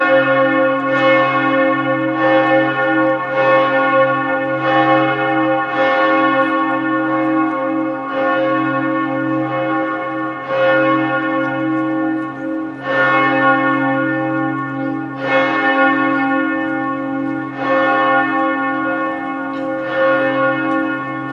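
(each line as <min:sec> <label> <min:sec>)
0:00.0 A cathedral bell rings loudly and repeatedly. 0:21.3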